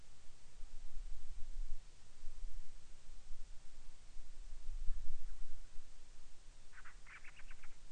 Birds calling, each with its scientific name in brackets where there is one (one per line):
Band-rumped Storm-Petrel (Hydrobates castro)